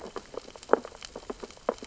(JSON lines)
{"label": "biophony, sea urchins (Echinidae)", "recorder": "SoundTrap 600 or HydroMoth"}